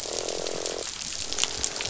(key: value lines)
label: biophony, croak
recorder: SoundTrap 500